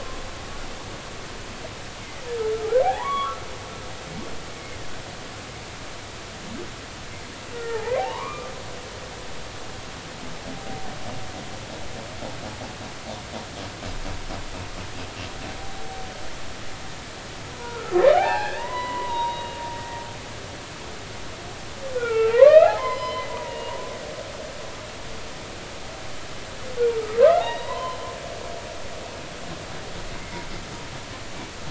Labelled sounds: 2.0	2.3	humpback whale, 1.9 to 2.2 kHz
2.8	3.4	humpback whale, 0.80 to 3.5 kHz
7.5	8.5	humpback whale, 0.80 to 2.5 kHz
17.5	20.0	humpback whale, 0.80 to 3.9 kHz
21.9	23.8	humpback whale, 0.80 to 5.2 kHz
27.2	28.0	humpback whale, 0.80 to 4.0 kHz
30.2	30.5	humpback whale, 2.0 to 2.3 kHz

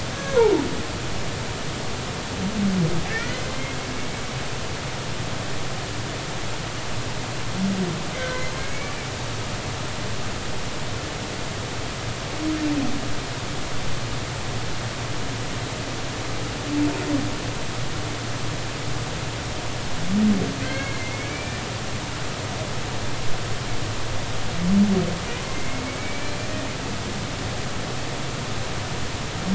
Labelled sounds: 0.1	0.4	humpback whale, 1.6 to 1.7 kHz
3.1	3.5	humpback whale, 1.6 to 2.1 kHz
8.2	8.4	humpback whale, 1.5 to 1.6 kHz
20.6	21.6	humpback whale, 1.5 to 4.4 kHz
25.5	26.4	humpback whale, 2.0 to 2.4 kHz

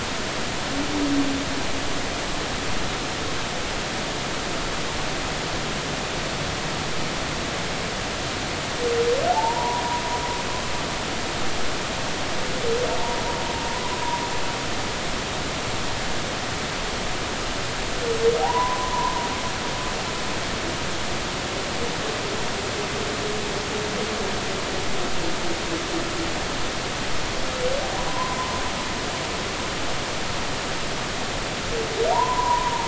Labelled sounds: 9.3	9.8	humpback whale, 0.80 to 1.0 kHz
18.4	19.1	humpback whale, 0.80 to 1.1 kHz
28.1	28.4	humpback whale, 0.93 to 1.1 kHz
32.1	32.8	humpback whale, 0.86 to 1.1 kHz

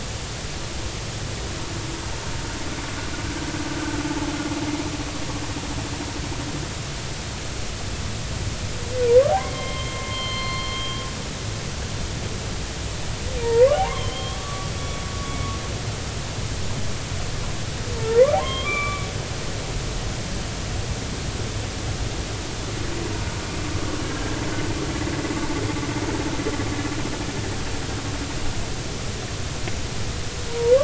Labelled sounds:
9.4	11.1	humpback whale, 0.99 to 4.3 kHz
13.4	14.7	humpback whale, 0.80 to 3.5 kHz
17.9	19.1	humpback whale, 0.80 to 3.7 kHz
24.0	24.3	humpback whale, 1.6 to 1.7 kHz
30.5	30.7	humpback whale, 0.90 to 0.99 kHz

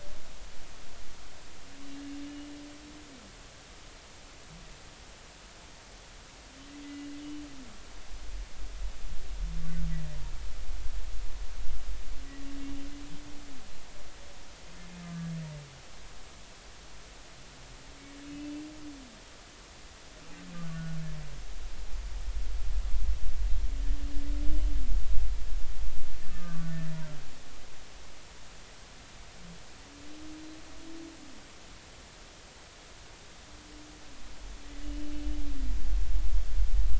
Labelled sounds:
6.8	7.1	humpback whale, 1.95 to 2.05 kHz
15.0	15.3	humpback whale, 1.1 to 1.2 kHz
18.2	18.5	humpback whale, 2.5 to 2.7 kHz
24.5	24.7	humpback whale, 2.9 to 3.1 kHz
26.2	27.0	humpback whale, 1.1 to 1.8 kHz

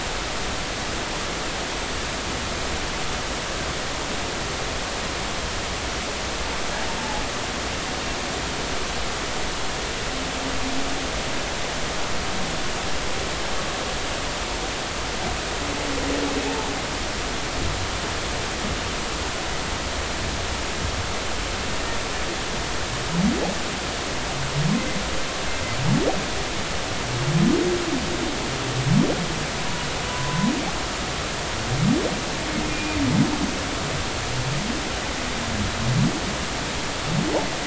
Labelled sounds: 7.0	7.2	humpback whale, 0.80 to 0.93 kHz
30.1	30.5	humpback whale, 0.96 to 1.1 kHz
32.7	33.0	humpback whale, 2.4 to 2.5 kHz

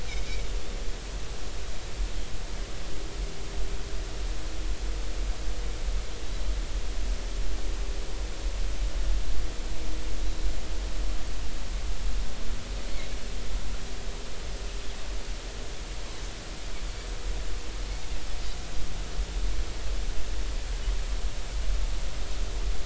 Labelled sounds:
0.1	0.4	Pacific white-sided dolphin, 2.1 to 2.5 kHz
10.2	10.5	Pacific white-sided dolphin, 3.7 to 4.1 kHz

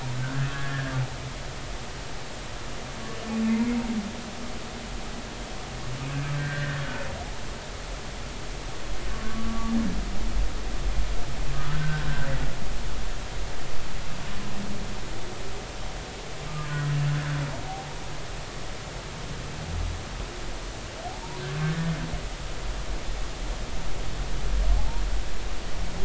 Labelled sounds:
0.1	1.0	humpback whale, 1.4 to 1.8 kHz
6.3	6.8	humpback whale, 1.5 to 1.9 kHz
9.1	9.7	humpback whale, 1.1 to 1.2 kHz
11.7	12.3	humpback whale, 1.3 to 1.7 kHz
16.5	16.7	humpback whale, 1.2 to 1.3 kHz
24.8	25.0	humpback whale, 0.80 to 0.99 kHz

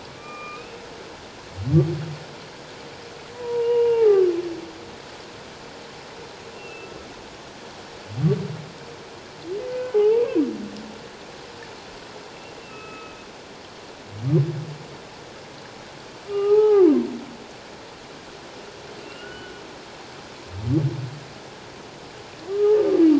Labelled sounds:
0.1	0.8	humpback whale, 1.1 to 2.8 kHz
3.3	4.3	humpback whale, 0.78 to 2.9 kHz
6.5	6.9	humpback whale, 2.6 to 2.8 kHz
9.7	10.2	humpback whale, 0.78 to 1.6 kHz
12.6	13.2	humpback whale, 1.2 to 2.8 kHz
16.3	16.9	humpback whale, 0.78 to 2.9 kHz
19.0	19.6	humpback whale, 1.3 to 3.0 kHz
22.5	22.8	humpback whale, 1.1 to 1.3 kHz

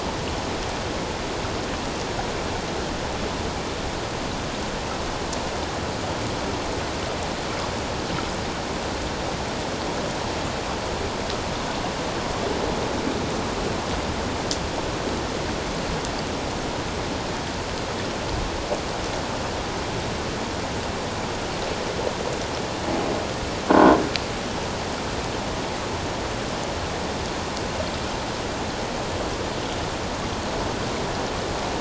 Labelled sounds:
23.7	24.0	croaking sound likely from a nearby submerged object, 1.4 to 1.6 kHz

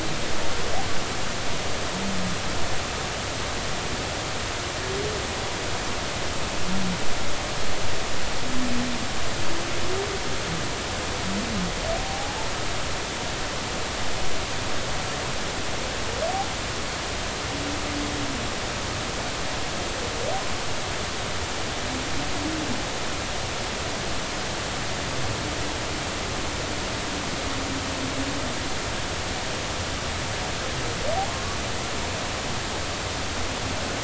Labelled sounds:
12.0	12.4	humpback whale, 0.80 to 0.86 kHz

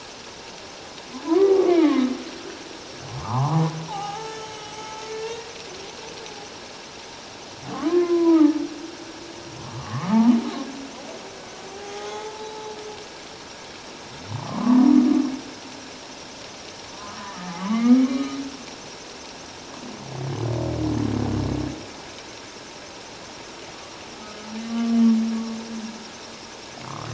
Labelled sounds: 1.2	2.1	humpback whale, 0.84 to 2.5 kHz
3.2	5.5	humpback whale, 0.78 to 7.9 kHz
7.9	8.6	humpback whale, 0.84 to 1.1 kHz
9.7	10.2	humpback whale, 1.0 to 1.3 kHz
11.7	12.7	humpback whale, 0.78 to 4.0 kHz
14.3	14.8	humpback whale, 0.88 to 1.2 kHz
16.9	18.0	humpback whale, 0.81 to 1.3 kHz
24.6	24.9	humpback whale, 1.1 to 3.1 kHz

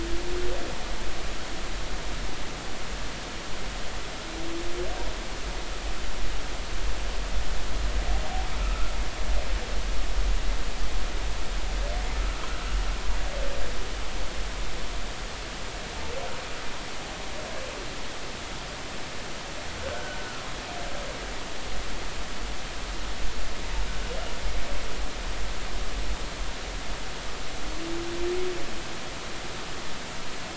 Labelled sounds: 8.6	8.9	humpback whale, 1.2 to 1.4 kHz
12.4	12.7	humpback whale, 1.2 to 1.6 kHz
19.8	20.4	humpback whale, 1.2 to 1.6 kHz

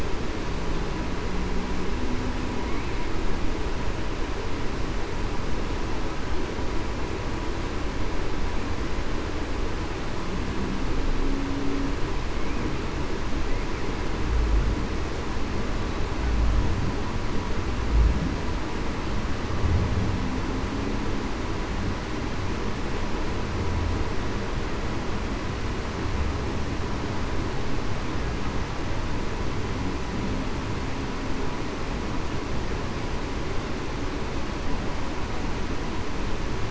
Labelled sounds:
11.2	11.6	humpback whale, 0.26 to 0.28 kHz

